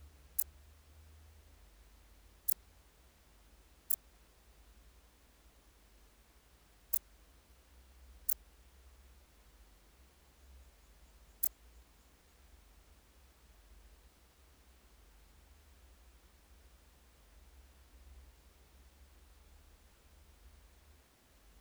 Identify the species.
Pachytrachis gracilis